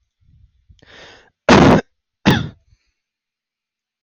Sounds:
Cough